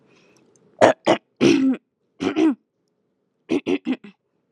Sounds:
Throat clearing